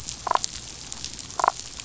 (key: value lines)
label: biophony, damselfish
recorder: SoundTrap 500